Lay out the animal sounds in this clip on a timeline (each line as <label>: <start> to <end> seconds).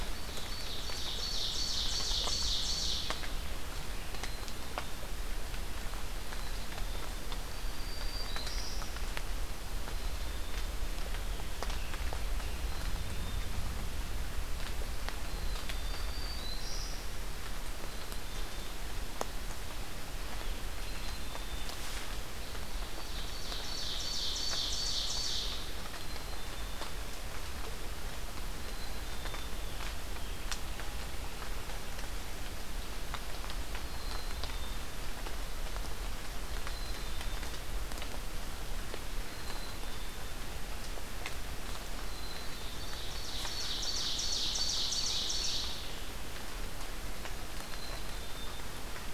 Ovenbird (Seiurus aurocapilla): 0.0 to 3.1 seconds
Black-capped Chickadee (Poecile atricapillus): 4.0 to 5.0 seconds
Black-throated Green Warbler (Setophaga virens): 7.2 to 8.9 seconds
Black-capped Chickadee (Poecile atricapillus): 9.8 to 10.7 seconds
Scarlet Tanager (Piranga olivacea): 11.0 to 13.4 seconds
Black-capped Chickadee (Poecile atricapillus): 12.6 to 13.6 seconds
Black-throated Green Warbler (Setophaga virens): 15.2 to 17.1 seconds
Black-capped Chickadee (Poecile atricapillus): 17.7 to 18.7 seconds
Black-capped Chickadee (Poecile atricapillus): 20.7 to 21.8 seconds
Ovenbird (Seiurus aurocapilla): 22.7 to 25.6 seconds
Black-capped Chickadee (Poecile atricapillus): 25.9 to 27.0 seconds
Black-capped Chickadee (Poecile atricapillus): 28.6 to 29.6 seconds
Black-capped Chickadee (Poecile atricapillus): 33.7 to 34.8 seconds
Black-capped Chickadee (Poecile atricapillus): 36.6 to 37.6 seconds
Black-capped Chickadee (Poecile atricapillus): 39.3 to 40.3 seconds
Black-capped Chickadee (Poecile atricapillus): 42.0 to 43.1 seconds
Ovenbird (Seiurus aurocapilla): 42.8 to 45.7 seconds
Black-capped Chickadee (Poecile atricapillus): 47.6 to 48.7 seconds